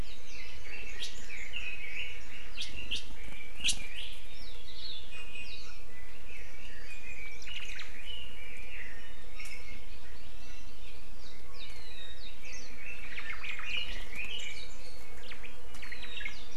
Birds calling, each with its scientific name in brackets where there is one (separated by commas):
Red-billed Leiothrix (Leiothrix lutea), Omao (Myadestes obscurus), Hawaii Amakihi (Chlorodrepanis virens), Iiwi (Drepanis coccinea), Hawaii Akepa (Loxops coccineus)